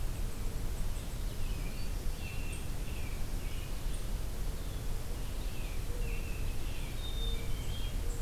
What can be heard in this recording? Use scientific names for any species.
unidentified call, Vireo olivaceus, Turdus migratorius, Setophaga virens, Poecile atricapillus